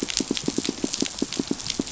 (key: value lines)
label: biophony, pulse
recorder: SoundTrap 500